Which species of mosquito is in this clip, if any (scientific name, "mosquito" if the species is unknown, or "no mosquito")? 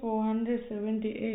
no mosquito